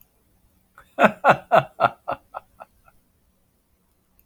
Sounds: Laughter